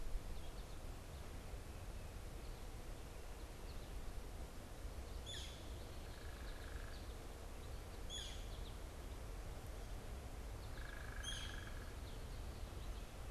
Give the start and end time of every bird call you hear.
[0.00, 8.90] American Goldfinch (Spinus tristis)
[4.80, 8.80] Northern Flicker (Colaptes auratus)
[5.70, 7.20] unidentified bird
[10.30, 13.30] American Goldfinch (Spinus tristis)
[10.70, 12.10] unidentified bird
[11.10, 11.60] Northern Flicker (Colaptes auratus)

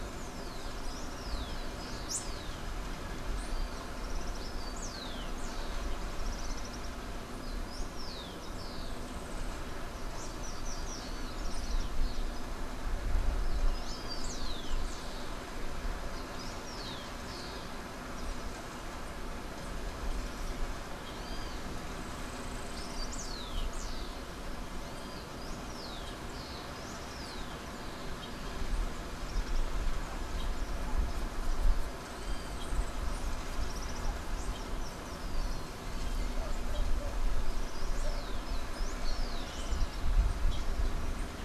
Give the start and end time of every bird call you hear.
[0.00, 2.40] Rufous-collared Sparrow (Zonotrichia capensis)
[4.20, 6.00] Rufous-collared Sparrow (Zonotrichia capensis)
[6.00, 7.00] Common Tody-Flycatcher (Todirostrum cinereum)
[7.30, 9.10] Rufous-collared Sparrow (Zonotrichia capensis)
[8.70, 9.70] Yellow-faced Grassquit (Tiaris olivaceus)
[11.10, 12.40] Common Tody-Flycatcher (Todirostrum cinereum)
[13.50, 17.80] Rufous-collared Sparrow (Zonotrichia capensis)
[21.80, 23.10] Yellow-faced Grassquit (Tiaris olivaceus)
[22.60, 28.10] Rufous-collared Sparrow (Zonotrichia capensis)
[29.00, 29.70] Common Tody-Flycatcher (Todirostrum cinereum)
[32.00, 33.10] Yellow-faced Grassquit (Tiaris olivaceus)
[33.30, 34.30] Common Tody-Flycatcher (Todirostrum cinereum)
[34.30, 36.00] Rufous-collared Sparrow (Zonotrichia capensis)

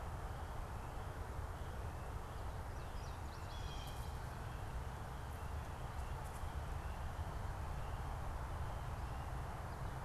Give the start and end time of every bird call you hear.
[2.82, 4.62] American Goldfinch (Spinus tristis)
[3.42, 4.02] Blue Jay (Cyanocitta cristata)

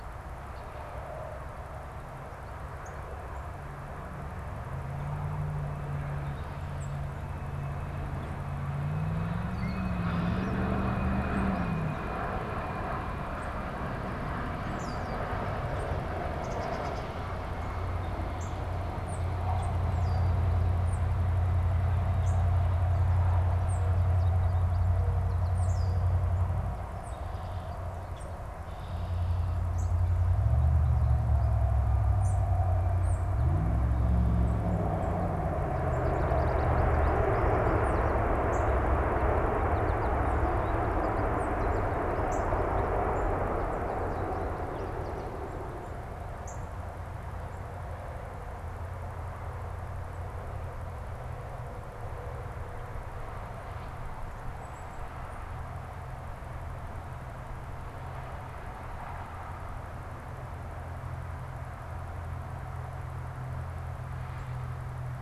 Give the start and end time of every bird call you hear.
[2.66, 2.96] Northern Cardinal (Cardinalis cardinalis)
[6.66, 7.06] Tufted Titmouse (Baeolophus bicolor)
[9.16, 10.86] Red-winged Blackbird (Agelaius phoeniceus)
[14.56, 15.36] Red-winged Blackbird (Agelaius phoeniceus)
[16.26, 17.26] Black-capped Chickadee (Poecile atricapillus)
[18.26, 18.66] Northern Cardinal (Cardinalis cardinalis)
[18.96, 19.86] Tufted Titmouse (Baeolophus bicolor)
[19.86, 20.46] unidentified bird
[20.76, 21.16] Tufted Titmouse (Baeolophus bicolor)
[22.16, 22.46] Northern Cardinal (Cardinalis cardinalis)
[23.46, 23.96] Tufted Titmouse (Baeolophus bicolor)
[23.46, 26.36] Mourning Dove (Zenaida macroura)
[23.86, 25.76] American Goldfinch (Spinus tristis)
[25.36, 26.06] Red-winged Blackbird (Agelaius phoeniceus)
[25.46, 25.76] Tufted Titmouse (Baeolophus bicolor)
[26.66, 27.26] Tufted Titmouse (Baeolophus bicolor)
[26.96, 29.76] Red-winged Blackbird (Agelaius phoeniceus)
[29.66, 29.96] Northern Cardinal (Cardinalis cardinalis)
[32.06, 33.26] Tufted Titmouse (Baeolophus bicolor)
[32.16, 32.36] Northern Cardinal (Cardinalis cardinalis)
[35.46, 45.56] American Goldfinch (Spinus tristis)
[37.66, 38.06] Tufted Titmouse (Baeolophus bicolor)
[38.46, 38.76] Northern Cardinal (Cardinalis cardinalis)
[41.16, 41.66] Tufted Titmouse (Baeolophus bicolor)
[42.26, 42.56] Northern Cardinal (Cardinalis cardinalis)
[46.46, 46.76] Northern Cardinal (Cardinalis cardinalis)
[54.36, 55.76] unidentified bird

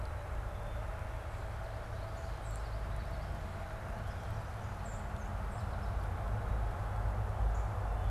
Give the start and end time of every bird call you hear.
[0.09, 0.99] Black-capped Chickadee (Poecile atricapillus)
[1.89, 3.59] Common Yellowthroat (Geothlypis trichas)
[4.59, 6.29] American Goldfinch (Spinus tristis)
[7.29, 7.59] Northern Cardinal (Cardinalis cardinalis)

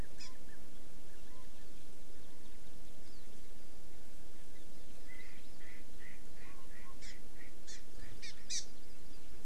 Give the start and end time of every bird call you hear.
[0.18, 0.28] Hawaii Amakihi (Chlorodrepanis virens)
[3.08, 3.28] Hawaii Amakihi (Chlorodrepanis virens)
[5.08, 8.18] Erckel's Francolin (Pternistis erckelii)
[6.98, 7.18] Hawaii Amakihi (Chlorodrepanis virens)
[7.68, 9.18] Hawaii Amakihi (Chlorodrepanis virens)

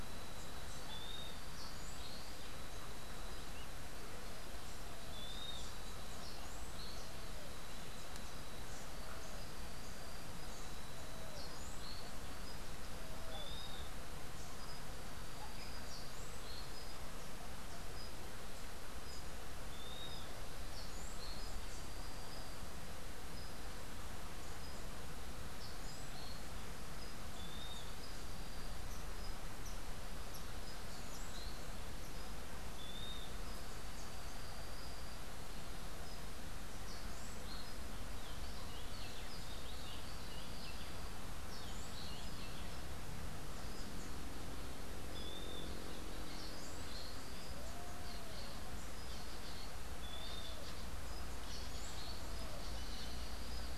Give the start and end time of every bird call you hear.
[5.00, 5.80] Western Wood-Pewee (Contopus sordidulus)
[13.20, 13.90] Western Wood-Pewee (Contopus sordidulus)
[19.60, 20.30] Western Wood-Pewee (Contopus sordidulus)
[27.20, 28.00] Western Wood-Pewee (Contopus sordidulus)
[32.60, 33.40] Western Wood-Pewee (Contopus sordidulus)
[38.20, 42.90] Rufous-breasted Wren (Pheugopedius rutilus)
[45.00, 45.70] Western Wood-Pewee (Contopus sordidulus)
[49.90, 50.60] Western Wood-Pewee (Contopus sordidulus)

